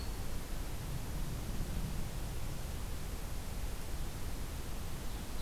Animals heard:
forest ambience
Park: Acadia National Park